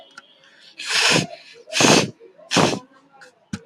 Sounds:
Sneeze